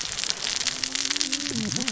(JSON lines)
{"label": "biophony, cascading saw", "recorder": "SoundTrap 600 or HydroMoth"}